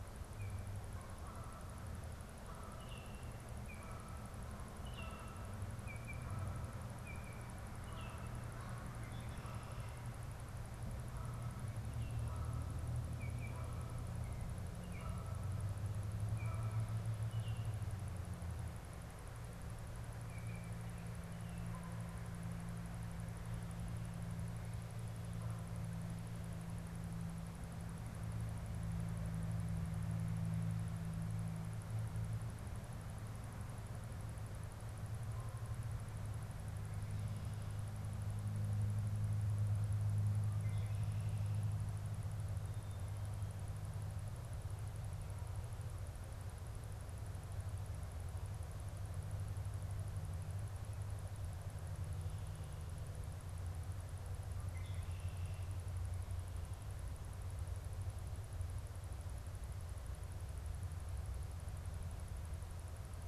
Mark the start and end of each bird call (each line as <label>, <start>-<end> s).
Canada Goose (Branta canadensis), 0.0-5.6 s
Baltimore Oriole (Icterus galbula), 5.6-8.5 s
Canada Goose (Branta canadensis), 7.8-14.5 s
Canada Goose (Branta canadensis), 15.0-17.2 s
Baltimore Oriole (Icterus galbula), 17.2-17.9 s
Baltimore Oriole (Icterus galbula), 20.1-20.9 s
Canada Goose (Branta canadensis), 21.5-26.2 s
Red-winged Blackbird (Agelaius phoeniceus), 40.5-41.6 s
Red-winged Blackbird (Agelaius phoeniceus), 54.5-55.8 s